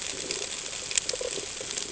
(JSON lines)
{"label": "ambient", "recorder": "HydroMoth"}